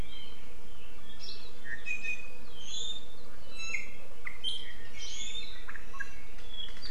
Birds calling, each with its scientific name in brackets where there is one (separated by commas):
Iiwi (Drepanis coccinea)